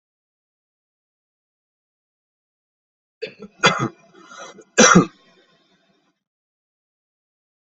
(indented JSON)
{
  "expert_labels": [
    {
      "quality": "good",
      "cough_type": "unknown",
      "dyspnea": false,
      "wheezing": false,
      "stridor": false,
      "choking": false,
      "congestion": false,
      "nothing": true,
      "diagnosis": "healthy cough",
      "severity": "pseudocough/healthy cough"
    }
  ],
  "age": 41,
  "gender": "male",
  "respiratory_condition": false,
  "fever_muscle_pain": false,
  "status": "healthy"
}